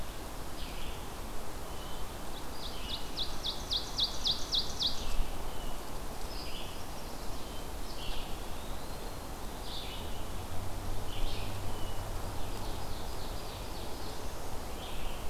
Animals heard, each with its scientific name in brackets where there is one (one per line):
Chestnut-sided Warbler (Setophaga pensylvanica)
Ovenbird (Seiurus aurocapilla)
Red-eyed Vireo (Vireo olivaceus)
Eastern Wood-Pewee (Contopus virens)